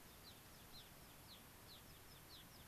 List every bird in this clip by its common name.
American Pipit, Gray-crowned Rosy-Finch